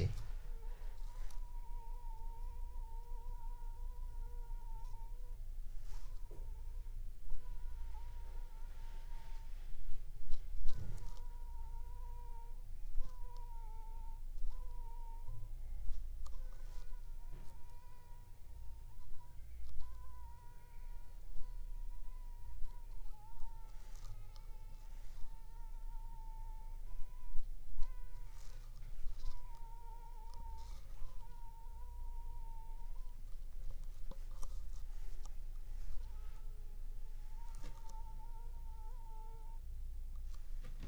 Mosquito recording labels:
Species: Anopheles funestus s.s.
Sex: female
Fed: unfed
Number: one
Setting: cup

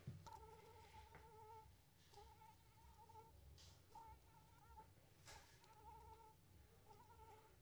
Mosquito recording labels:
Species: Anopheles arabiensis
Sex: female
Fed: unfed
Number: one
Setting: cup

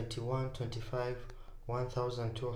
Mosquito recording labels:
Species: Culex pipiens complex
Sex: female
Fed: unfed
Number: one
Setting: cup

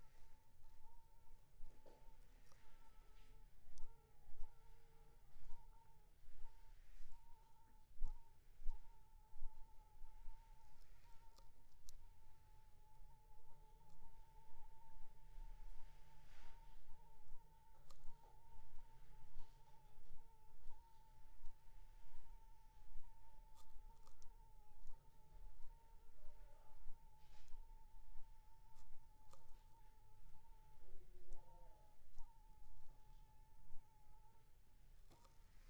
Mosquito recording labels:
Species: Anopheles funestus s.s.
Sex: female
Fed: unfed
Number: one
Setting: cup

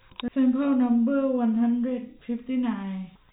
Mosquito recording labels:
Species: no mosquito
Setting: cup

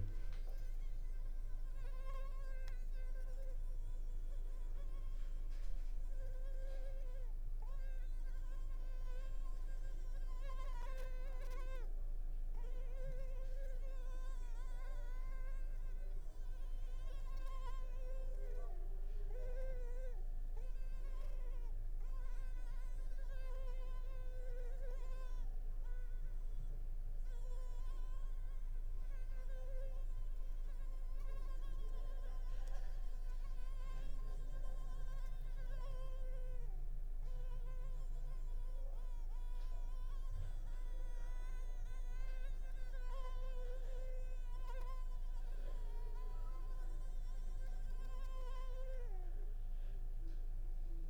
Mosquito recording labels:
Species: Culex pipiens complex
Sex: female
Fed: unfed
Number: one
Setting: cup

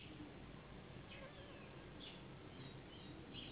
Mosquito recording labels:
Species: Anopheles gambiae s.s.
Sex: female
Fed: unfed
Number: one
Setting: insect culture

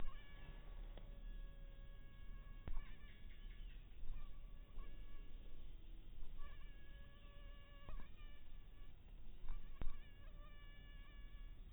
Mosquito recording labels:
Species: mosquito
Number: one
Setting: cup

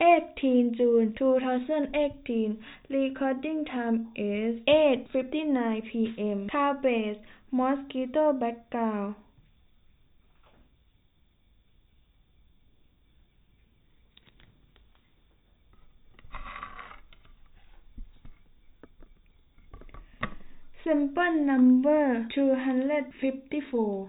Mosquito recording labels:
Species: no mosquito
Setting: cup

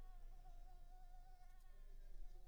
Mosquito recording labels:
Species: Anopheles coustani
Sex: female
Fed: unfed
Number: one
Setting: cup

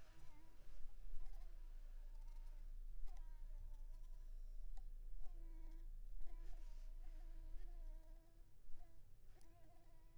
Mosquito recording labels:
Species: Anopheles coustani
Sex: female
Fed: unfed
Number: one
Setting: cup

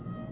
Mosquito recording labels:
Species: Aedes albopictus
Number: one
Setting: insect culture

